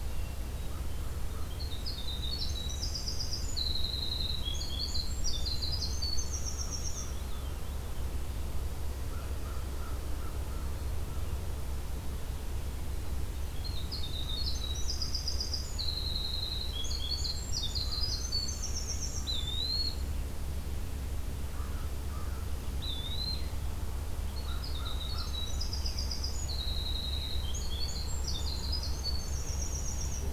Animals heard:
Eastern Wood-Pewee (Contopus virens)
Winter Wren (Troglodytes hiemalis)
American Crow (Corvus brachyrhynchos)
Black-throated Green Warbler (Setophaga virens)
Veery (Catharus fuscescens)

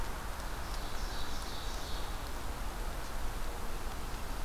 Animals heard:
Ovenbird (Seiurus aurocapilla)

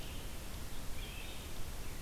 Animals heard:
Wood Thrush (Hylocichla mustelina)
Red-eyed Vireo (Vireo olivaceus)

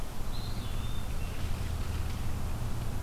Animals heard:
Eastern Wood-Pewee (Contopus virens)

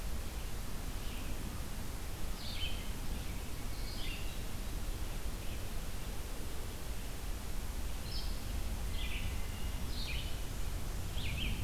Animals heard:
Hermit Thrush (Catharus guttatus)
Red-eyed Vireo (Vireo olivaceus)

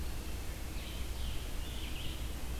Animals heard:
Red-eyed Vireo (Vireo olivaceus)
Scarlet Tanager (Piranga olivacea)
Red-breasted Nuthatch (Sitta canadensis)

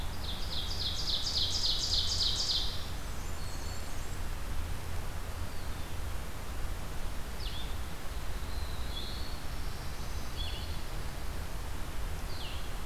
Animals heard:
Black-throated Blue Warbler (Setophaga caerulescens)
Ovenbird (Seiurus aurocapilla)
Black-throated Green Warbler (Setophaga virens)
Blue-headed Vireo (Vireo solitarius)
Blackburnian Warbler (Setophaga fusca)

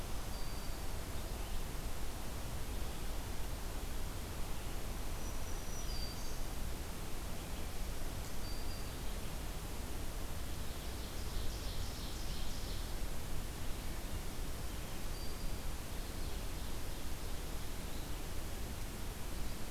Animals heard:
Ovenbird (Seiurus aurocapilla)
Black-throated Green Warbler (Setophaga virens)

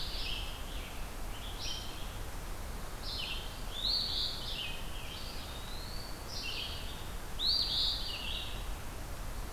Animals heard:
Scarlet Tanager (Piranga olivacea)
Red-eyed Vireo (Vireo olivaceus)
Eastern Phoebe (Sayornis phoebe)
Eastern Wood-Pewee (Contopus virens)

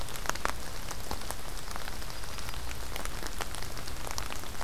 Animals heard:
Yellow-rumped Warbler (Setophaga coronata)

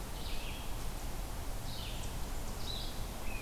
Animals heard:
Red-eyed Vireo (Vireo olivaceus)

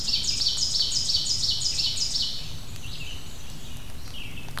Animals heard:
Red-eyed Vireo (Vireo olivaceus)
Black-and-white Warbler (Mniotilta varia)
Ovenbird (Seiurus aurocapilla)

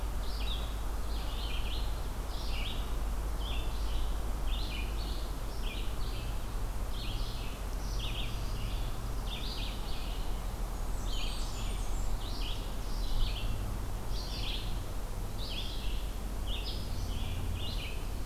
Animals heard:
Blackburnian Warbler (Setophaga fusca)
Red-eyed Vireo (Vireo olivaceus)

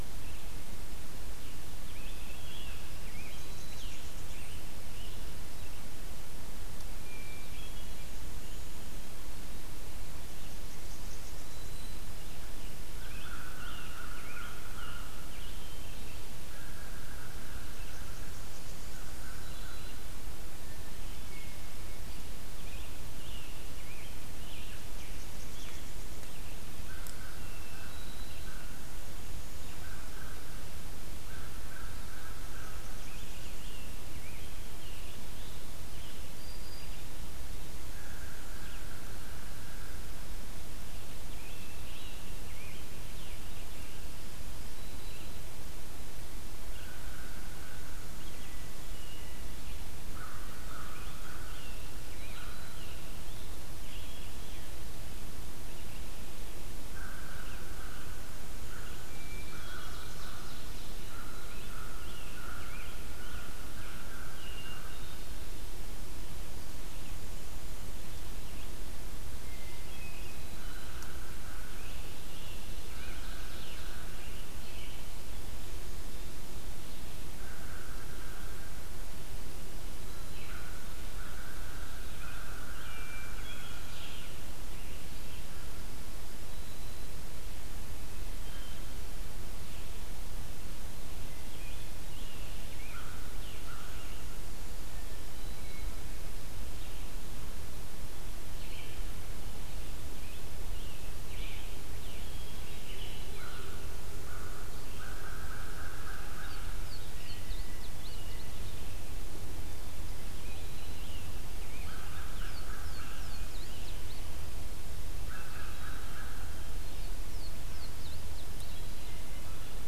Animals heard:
Ovenbird (Seiurus aurocapilla)
Black-throated Green Warbler (Setophaga virens)
Hermit Thrush (Catharus guttatus)
Blackburnian Warbler (Setophaga fusca)
Scarlet Tanager (Piranga olivacea)
Red-eyed Vireo (Vireo olivaceus)
Louisiana Waterthrush (Parkesia motacilla)
American Crow (Corvus brachyrhynchos)

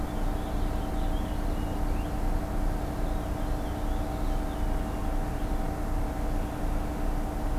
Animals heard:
Purple Finch (Haemorhous purpureus)

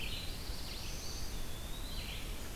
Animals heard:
Red-eyed Vireo (Vireo olivaceus)
Eastern Wood-Pewee (Contopus virens)
Black-throated Blue Warbler (Setophaga caerulescens)

